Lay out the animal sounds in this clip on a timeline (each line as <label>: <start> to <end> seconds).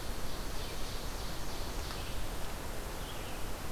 Ovenbird (Seiurus aurocapilla): 0.0 to 1.7 seconds
Red-eyed Vireo (Vireo olivaceus): 0.0 to 3.7 seconds